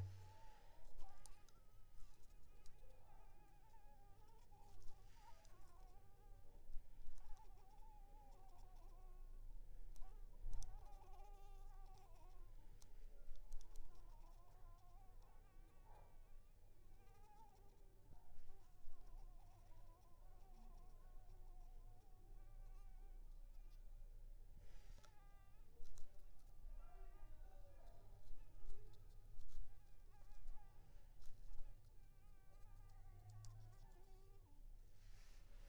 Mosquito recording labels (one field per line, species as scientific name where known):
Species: Anopheles arabiensis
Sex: female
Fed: unfed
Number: one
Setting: cup